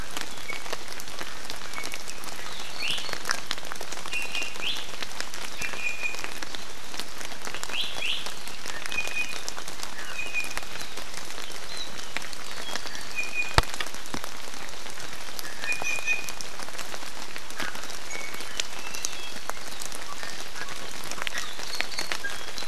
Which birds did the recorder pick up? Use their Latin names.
Drepanis coccinea